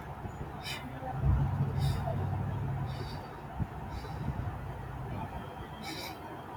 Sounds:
Sigh